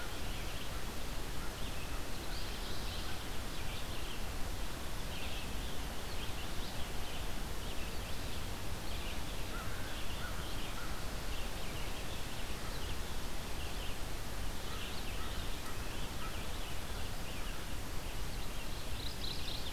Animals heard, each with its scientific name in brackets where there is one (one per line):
Red-eyed Vireo (Vireo olivaceus)
Mourning Warbler (Geothlypis philadelphia)
American Crow (Corvus brachyrhynchos)